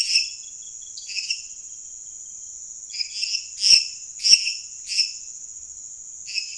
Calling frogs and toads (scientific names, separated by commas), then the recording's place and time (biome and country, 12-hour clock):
Dendropsophus minutus, Dendropsophus nanus
Cerrado, Brazil, 11:00pm